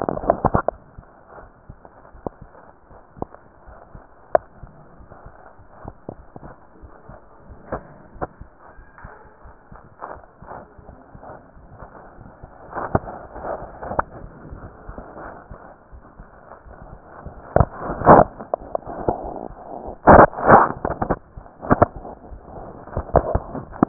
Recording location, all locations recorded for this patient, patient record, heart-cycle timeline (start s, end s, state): aortic valve (AV)
aortic valve (AV)+pulmonary valve (PV)+tricuspid valve (TV)+mitral valve (MV)
#Age: Adolescent
#Sex: Male
#Height: 145.0 cm
#Weight: 36.2 kg
#Pregnancy status: False
#Murmur: Absent
#Murmur locations: nan
#Most audible location: nan
#Systolic murmur timing: nan
#Systolic murmur shape: nan
#Systolic murmur grading: nan
#Systolic murmur pitch: nan
#Systolic murmur quality: nan
#Diastolic murmur timing: nan
#Diastolic murmur shape: nan
#Diastolic murmur grading: nan
#Diastolic murmur pitch: nan
#Diastolic murmur quality: nan
#Outcome: Normal
#Campaign: 2015 screening campaign
0.00	3.44	unannotated
3.44	3.66	diastole
3.66	3.76	S1
3.76	3.90	systole
3.90	4.02	S2
4.02	4.33	diastole
4.33	4.46	S1
4.46	4.58	systole
4.58	4.72	S2
4.72	5.08	diastole
5.08	5.16	S1
5.16	5.24	systole
5.24	5.34	S2
5.34	5.68	diastole
5.68	5.76	S1
5.76	5.84	systole
5.84	5.94	S2
5.94	6.24	diastole
6.24	6.32	S1
6.32	6.44	systole
6.44	6.54	S2
6.54	6.82	diastole
6.82	6.92	S1
6.92	7.08	systole
7.08	7.16	S2
7.16	7.50	diastole
7.50	7.60	S1
7.60	7.70	systole
7.70	7.84	S2
7.84	8.16	diastole
8.16	8.30	S1
8.30	8.39	systole
8.39	8.46	S2
8.46	8.78	diastole
8.78	8.88	S1
8.88	9.00	systole
9.00	9.10	S2
9.10	9.44	diastole
9.44	9.54	S1
9.54	9.68	systole
9.68	9.78	S2
9.78	10.12	diastole
10.12	10.14	S1
10.14	23.89	unannotated